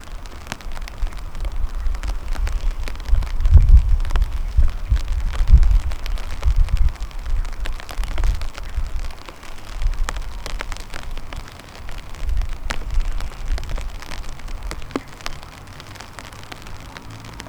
Is something burning?
yes